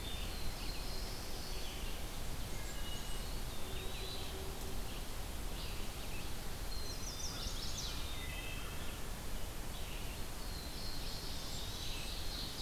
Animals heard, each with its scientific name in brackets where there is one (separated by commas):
Blackburnian Warbler (Setophaga fusca), Wood Thrush (Hylocichla mustelina), Black-capped Chickadee (Poecile atricapillus), Ovenbird (Seiurus aurocapilla), Eastern Wood-Pewee (Contopus virens), Chestnut-sided Warbler (Setophaga pensylvanica), Red-eyed Vireo (Vireo olivaceus), Black-throated Blue Warbler (Setophaga caerulescens)